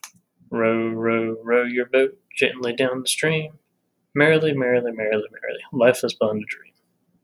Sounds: Sigh